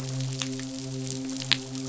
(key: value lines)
label: biophony, midshipman
recorder: SoundTrap 500